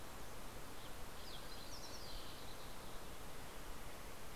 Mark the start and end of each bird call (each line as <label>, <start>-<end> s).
Yellow-rumped Warbler (Setophaga coronata), 0.0-0.8 s
Green-tailed Towhee (Pipilo chlorurus), 0.0-4.2 s